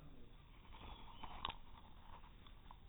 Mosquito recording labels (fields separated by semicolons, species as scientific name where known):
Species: no mosquito; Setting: cup